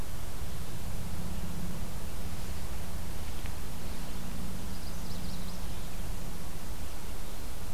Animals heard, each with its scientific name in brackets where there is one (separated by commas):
Magnolia Warbler (Setophaga magnolia)